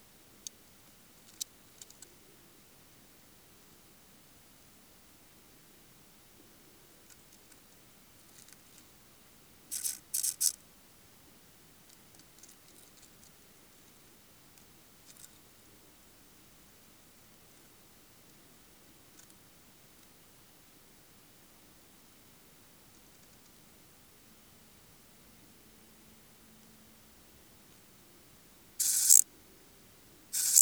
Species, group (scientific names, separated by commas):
Chorthippus brunneus, Orthoptera